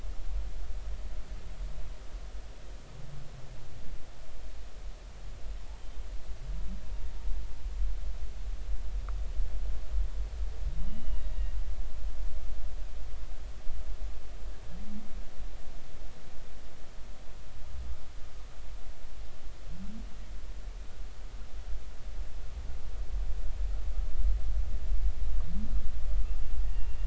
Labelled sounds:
10.9	11.5	humpback whale, 1.8 to 3.0 kHz
26.6	27.0	humpback whale, 1.8 to 2.8 kHz

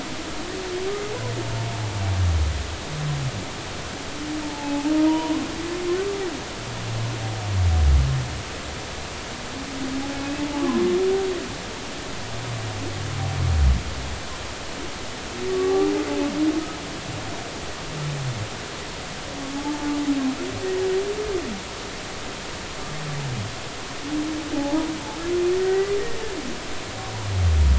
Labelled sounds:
4.4	5.4	humpback whale, 0.80 to 1.1 kHz
10.5	10.8	humpback whale, 0.96 to 1.2 kHz
15.5	15.9	humpback whale, 0.80 to 1.2 kHz
19.5	20.0	humpback whale, 0.80 to 0.93 kHz
24.5	26.0	humpback whale, 0.80 to 2.1 kHz

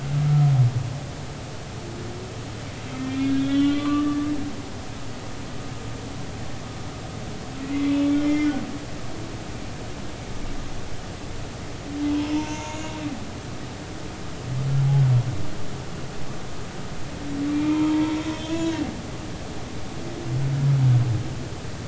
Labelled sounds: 0.3	0.5	humpback whale, 1.2 to 1.4 kHz
3.0	4.3	humpback whale, 0.99 to 3.5 kHz
7.9	8.6	humpback whale, 2.0 to 3.5 kHz
12.4	12.8	humpback whale, 0.86 to 0.99 kHz
17.5	18.8	humpback whale, 0.86 to 4.0 kHz

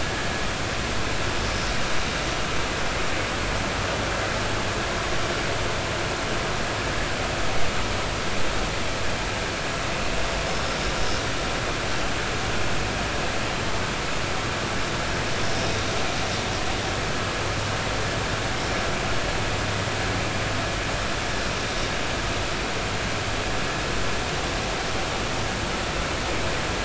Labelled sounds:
0.0	0.3	vessel noise, 1.6 to 1.8 kHz
10.5	10.8	vessel noise, 5.2 to 5.4 kHz

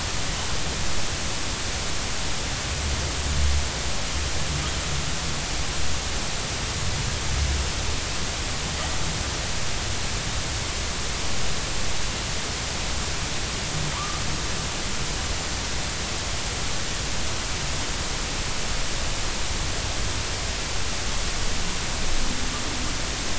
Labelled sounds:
13.9	14.2	humpback whale, 0.90 to 1.3 kHz

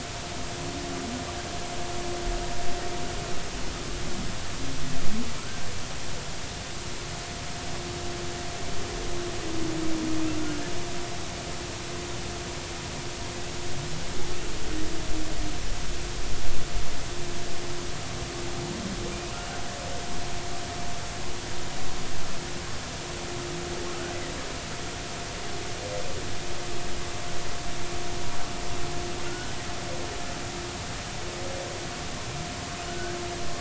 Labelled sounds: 5.4	5.7	humpback whale, 1.2 to 1.6 kHz
29.3	29.5	humpback whale, 1.4 to 1.6 kHz
32.9	33.2	humpback whale, 1.4 to 1.7 kHz

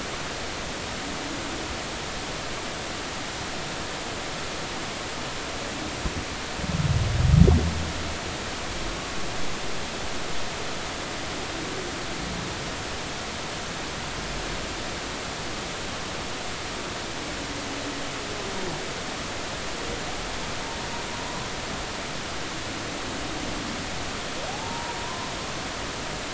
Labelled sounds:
24.5	25.3	humpback whale, 0.80 to 1.1 kHz

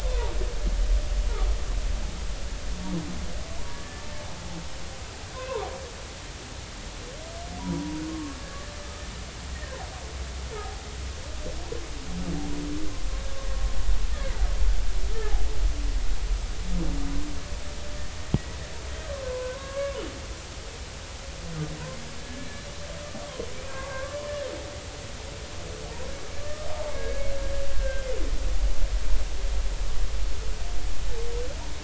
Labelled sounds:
3.7	4.0	humpback whale, 1.7 to 1.8 kHz
5.3	5.7	humpback whale, 0.86 to 1.1 kHz
7.6	8.4	humpback whale, 0.90 to 1.2 kHz
10.5	10.8	humpback whale, 0.80 to 0.90 kHz
19.3	20.0	humpback whale, 0.96 to 1.8 kHz
22.2	22.5	humpback whale, 1.7 to 1.8 kHz
23.7	24.2	humpback whale, 0.80 to 1.8 kHz
27.0	28.1	humpback whale, 1.5 to 1.7 kHz

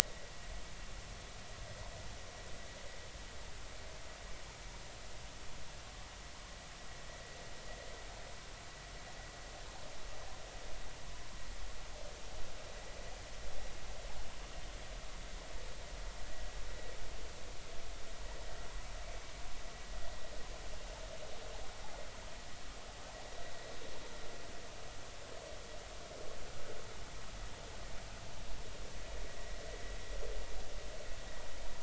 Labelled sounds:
0.0	0.3	vessel noise, 1.9 to 2.0 kHz

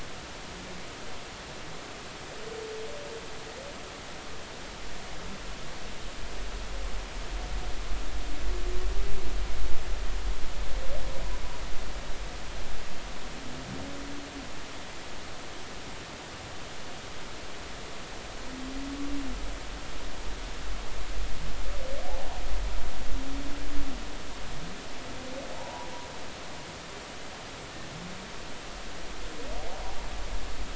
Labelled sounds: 25.5	25.9	humpback whale, 0.80 to 1.0 kHz

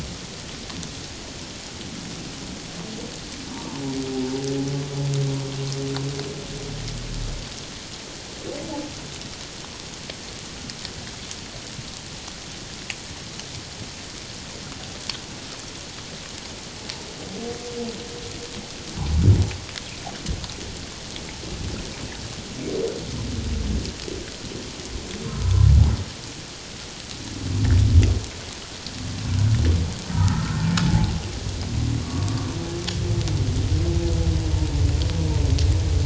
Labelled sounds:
25.4	25.7	humpback whale, 0.94 to 1.1 kHz
30.1	31.1	humpback whale, 0.78 to 1.9 kHz
32.0	32.5	humpback whale, 1.1 to 1.2 kHz

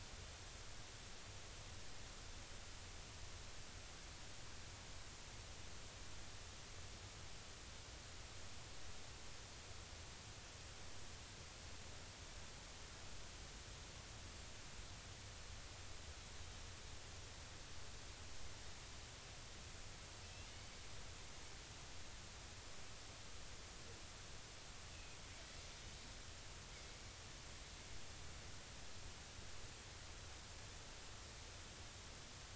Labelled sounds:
20.5	20.8	Pacific white-sided dolphin, 4.4 to 4.6 kHz
24.9	25.2	Pacific white-sided dolphin, 2.4 to 2.7 kHz

